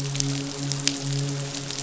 {"label": "biophony, midshipman", "recorder": "SoundTrap 500"}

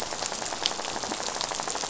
{"label": "biophony, rattle", "recorder": "SoundTrap 500"}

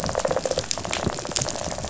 {"label": "biophony, rattle response", "recorder": "SoundTrap 500"}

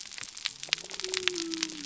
{"label": "biophony", "recorder": "SoundTrap 300"}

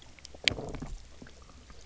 {"label": "biophony, low growl", "recorder": "SoundTrap 300"}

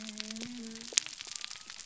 {"label": "biophony", "recorder": "SoundTrap 300"}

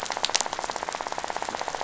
{"label": "biophony, rattle", "recorder": "SoundTrap 500"}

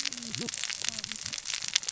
{"label": "biophony, cascading saw", "recorder": "SoundTrap 600 or HydroMoth"}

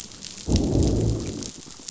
{"label": "biophony, growl", "recorder": "SoundTrap 500"}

